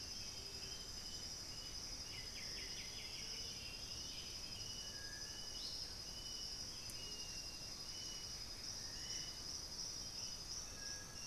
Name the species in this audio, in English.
Bluish-fronted Jacamar, Striped Cuckoo, White-winged Becard, Undulated Tinamou